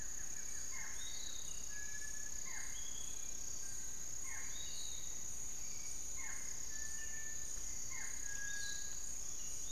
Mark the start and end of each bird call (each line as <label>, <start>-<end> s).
Buff-throated Woodcreeper (Xiphorhynchus guttatus), 0.0-1.6 s
Barred Forest-Falcon (Micrastur ruficollis), 0.0-9.7 s
Piratic Flycatcher (Legatus leucophaius), 0.0-9.7 s
Little Tinamou (Crypturellus soui), 1.7-9.7 s
Hauxwell's Thrush (Turdus hauxwelli), 4.1-9.7 s
Long-winged Antwren (Myrmotherula longipennis), 7.9-9.7 s